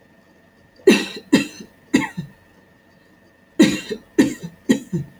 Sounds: Cough